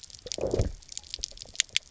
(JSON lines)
{"label": "biophony, low growl", "recorder": "SoundTrap 300"}